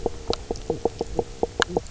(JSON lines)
{"label": "biophony, knock croak", "recorder": "SoundTrap 300"}